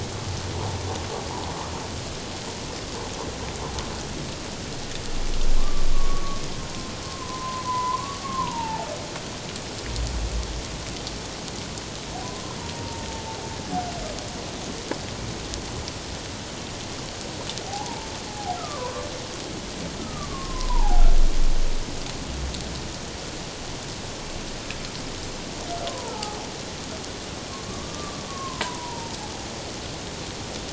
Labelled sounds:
5.6	6.4	humpback whale, 1.0 to 1.2 kHz
7.1	8.9	humpback whale, 0.78 to 1.2 kHz
12.7	13.1	humpback whale, 0.88 to 0.97 kHz
17.7	19.0	humpback whale, 0.78 to 1.4 kHz
20.0	21.1	humpback whale, 0.78 to 1.3 kHz
25.9	26.4	humpback whale, 0.88 to 1.4 kHz
27.7	29.1	humpback whale, 0.88 to 1.2 kHz

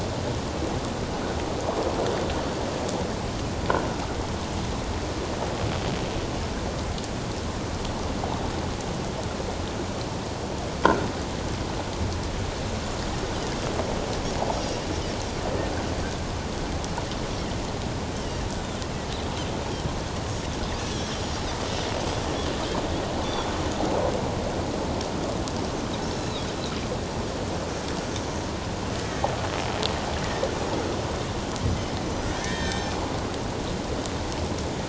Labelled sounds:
18.1	18.4	Pacific white-sided dolphin, 2.8 to 3.3 kHz
20.8	21.5	Pacific white-sided dolphin, 5.5 to 6.8 kHz
26.0	26.4	Pacific white-sided dolphin, 3.6 to 6.8 kHz
29.0	29.3	Pacific white-sided dolphin, 1.7 to 2.0 kHz
32.3	33.0	Pacific white-sided dolphin, 1.5 to 6.4 kHz

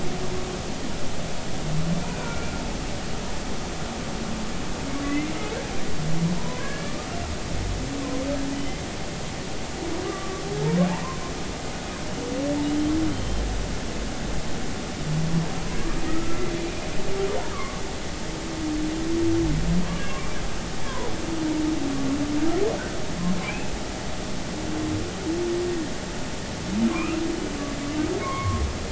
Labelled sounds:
2.1	2.5	humpback whale, 1.3 to 1.5 kHz
5.0	5.3	humpback whale, 1.9 to 2.2 kHz
6.4	7.0	humpback whale, 0.90 to 1.8 kHz
8.5	8.8	humpback whale, 1.9 to 3.1 kHz
10.1	10.4	humpback whale, 1.1 to 1.2 kHz
13.1	13.4	humpback whale, 3.0 to 3.2 kHz
16.1	16.5	humpback whale, 1.2 to 1.4 kHz
17.5	17.8	humpback whale, 1.0 to 1.3 kHz
20.8	21.1	humpback whale, 0.93 to 1.2 kHz
23.4	23.7	humpback whale, 2.2 to 2.8 kHz
26.9	27.2	humpback whale, 0.99 to 2.8 kHz
28.2	28.6	humpback whale, 0.96 to 2.3 kHz

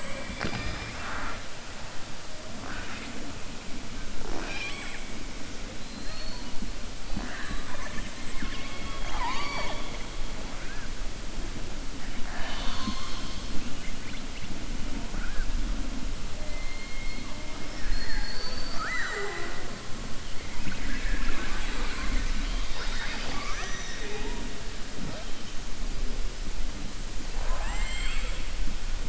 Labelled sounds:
5.8	6.5	killer whale, southern resident, 3.8 to 4.6 kHz
8.2	9.9	killer whale, southern resident, 0.36 to 6.6 kHz

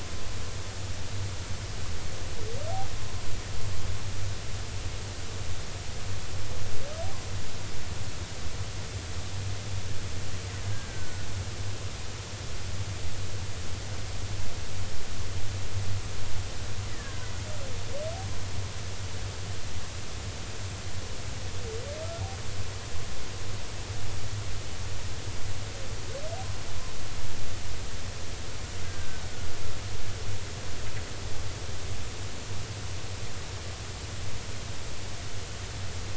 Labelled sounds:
10.7	11.3	killer whale, Bigg's (transient), 1.4 to 1.7 kHz
16.9	17.3	killer whale, Bigg's (transient), 1.4 to 2.1 kHz
28.8	29.2	killer whale, Bigg's (transient), 1.5 to 1.7 kHz

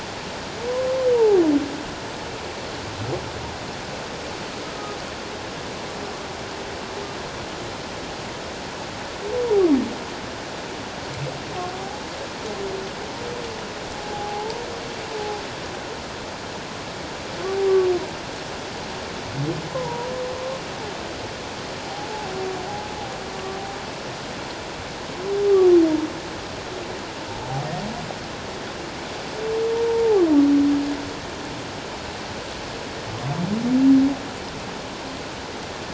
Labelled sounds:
1.1	1.4	humpback whale, 0.78 to 1.0 kHz
11.7	12.0	humpback whale, 0.78 to 0.88 kHz
14.0	14.6	humpback whale, 0.78 to 0.97 kHz
19.7	20.1	humpback whale, 0.81 to 1.1 kHz
29.7	30.2	humpback whale, 0.78 to 1.0 kHz

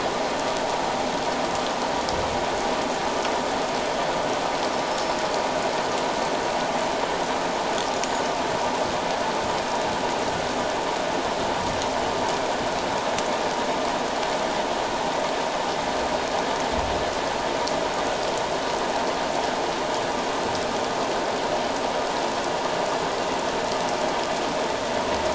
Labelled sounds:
4.9	5.2	humpback whale, 5.2 to 5.6 kHz

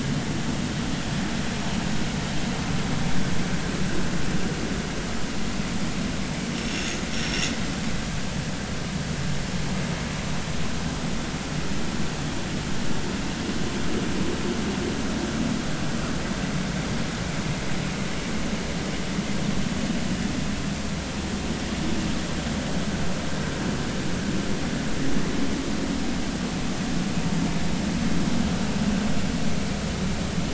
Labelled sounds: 7.1	7.5	vessel noise, 5.3 to 5.7 kHz

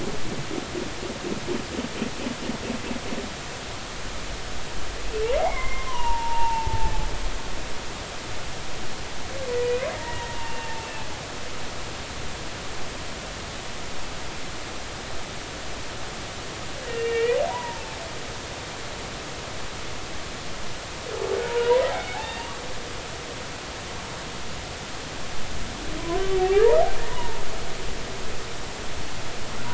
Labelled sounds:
5.4	6.9	humpback whale, 0.83 to 3.2 kHz
9.9	11.1	humpback whale, 0.83 to 2.8 kHz
16.9	17.8	humpback whale, 0.83 to 2.9 kHz
21.5	22.5	humpback whale, 0.90 to 4.8 kHz
26.5	27.4	humpback whale, 0.80 to 1.0 kHz

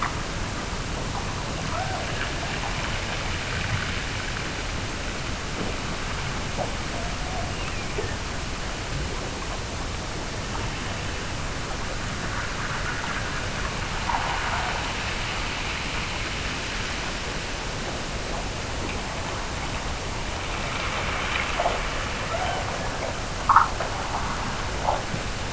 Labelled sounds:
1.7	2.5	killer whale, Bigg's (transient), Gulf of Alaska transient, 0.48 to 1.8 kHz
7.4	8.3	killer whale, Bigg's (transient), Gulf of Alaska transient, 1.5 to 2.9 kHz
22.2	23.3	killer whale, Bigg's (transient), Gulf of Alaska transient, 0.48 to 3.3 kHz

